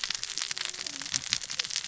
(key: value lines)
label: biophony, cascading saw
recorder: SoundTrap 600 or HydroMoth